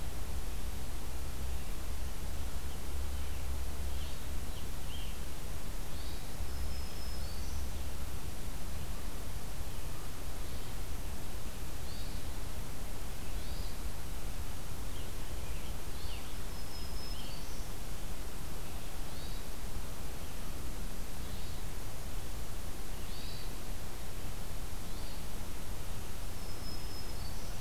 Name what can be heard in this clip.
Scarlet Tanager, Hermit Thrush, Black-throated Green Warbler